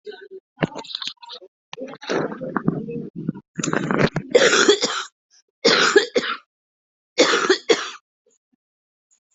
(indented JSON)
{
  "expert_labels": [
    {
      "quality": "good",
      "cough_type": "wet",
      "dyspnea": false,
      "wheezing": false,
      "stridor": false,
      "choking": false,
      "congestion": false,
      "nothing": true,
      "diagnosis": "lower respiratory tract infection",
      "severity": "severe"
    }
  ],
  "age": 49,
  "gender": "female",
  "respiratory_condition": false,
  "fever_muscle_pain": false,
  "status": "symptomatic"
}